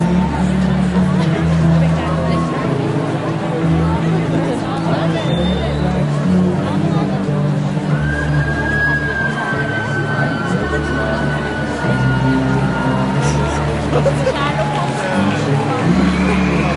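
A band is playing music. 0:00.0 - 0:16.8
Voices of a group of people talking continuously. 0:00.0 - 0:16.8
Someone is whistling. 0:05.1 - 0:05.9
A high-pitched cheer is heard. 0:07.8 - 0:13.8
Clapping sounds in the background. 0:14.3 - 0:15.9

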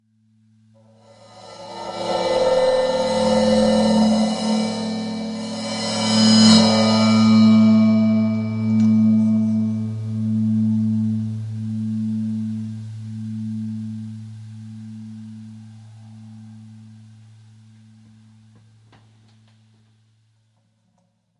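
Metallic drum sounds intensify as ambient noise. 0:01.5 - 0:07.0
Metallic ambient sound from a drum decreasing until it disappears. 0:07.1 - 0:17.0

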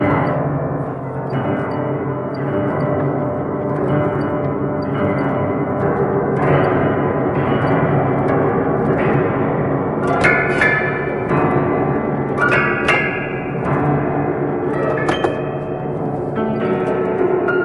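A loud, musical piano echoing repeatedly. 0:00.0 - 0:17.6
String instruments echo in the background. 0:10.3 - 0:15.6

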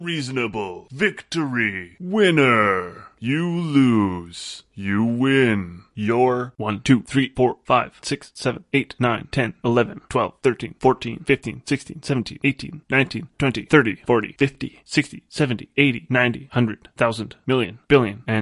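A man vocalizes video game sounds clearly. 0:00.0 - 0:18.4

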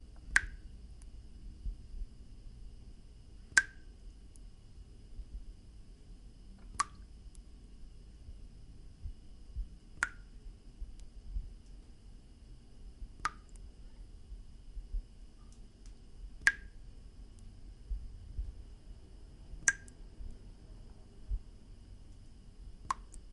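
A single water droplet falls and hits a surface. 0:00.2 - 0:00.5
A single water droplet falls and hits a surface. 0:03.4 - 0:03.8
A single water droplet falls and hits a surface. 0:06.7 - 0:07.0
A single water droplet falls and hits a surface. 0:10.0 - 0:10.2
A single water droplet falls and hits a surface. 0:13.1 - 0:13.4
A single water droplet falls and hits a surface. 0:16.3 - 0:16.7
A single water droplet falls and hits a surface. 0:19.5 - 0:19.9
A single water droplet falls and hits a surface. 0:22.8 - 0:23.1

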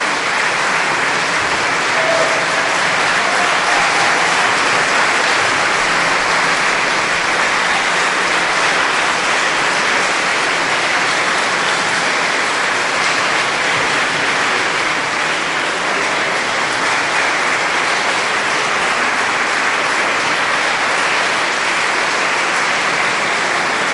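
Loud clapping echoes continuously in a large hall. 0:00.0 - 0:23.9

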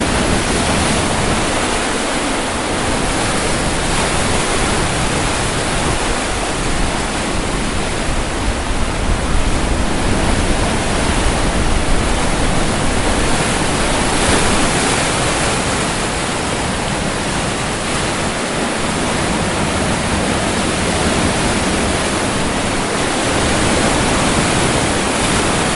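Waves push and pull in a constant rhythm near the beach. 0:00.0 - 0:25.8

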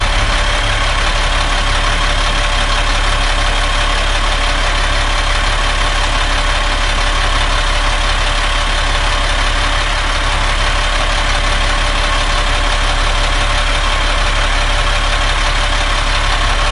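A stationary tractor’s engine makes loud, rhythmic, stuttering staccato sounds. 0:00.0 - 0:16.7

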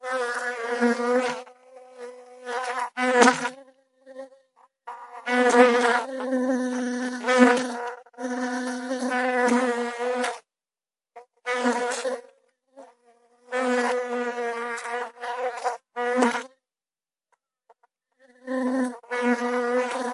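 Insects buzzing. 0:00.0 - 0:03.6
Insects buzzing. 0:04.9 - 0:10.5
Insects buzzing. 0:11.1 - 0:12.3
Insects buzzing. 0:13.5 - 0:16.5
Insects buzzing. 0:18.5 - 0:20.1

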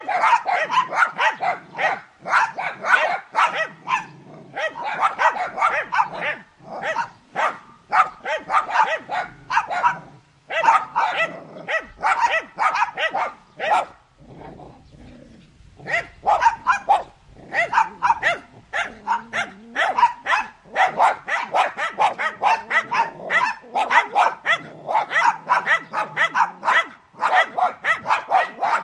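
Small dogs are barking. 0:00.0 - 0:28.8

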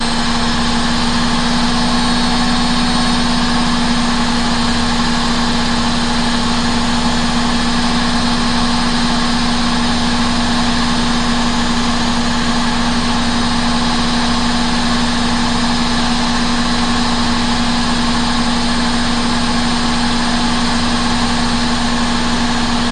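A continuous metallic engine hum. 0:00.0 - 0:22.9

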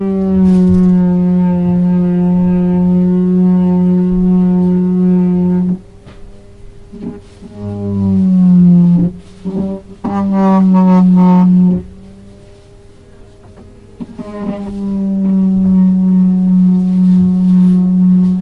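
A loud sanding machine is working on wood, producing a constant tone. 0:00.0 - 0:05.8
A loud sanding machine is working on wood. 0:07.5 - 0:11.9
A loud sanding machine works on wood, producing an oscillating tone. 0:14.1 - 0:18.4

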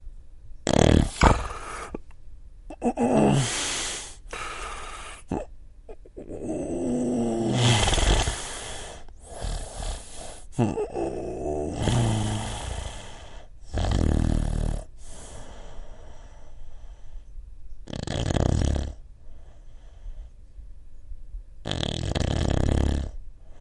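Snoring sounds almost like struggling to breathe. 0:00.6 - 0:23.6

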